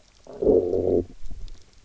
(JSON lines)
{"label": "biophony, low growl", "recorder": "SoundTrap 300"}